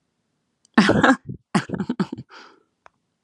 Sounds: Laughter